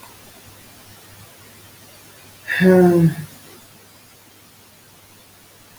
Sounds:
Sigh